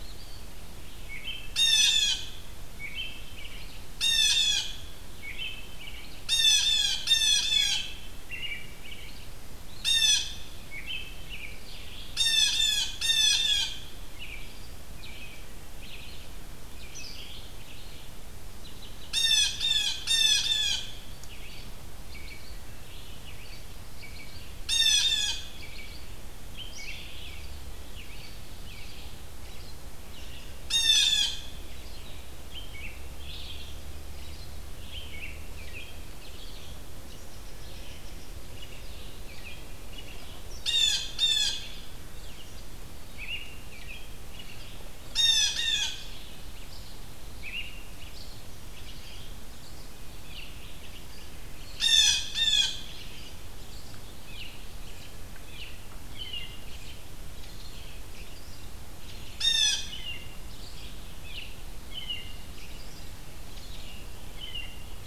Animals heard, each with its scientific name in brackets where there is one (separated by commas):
Blue Jay (Cyanocitta cristata), Red-eyed Vireo (Vireo olivaceus), American Robin (Turdus migratorius)